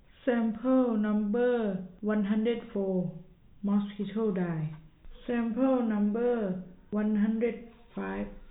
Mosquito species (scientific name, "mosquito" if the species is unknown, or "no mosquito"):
no mosquito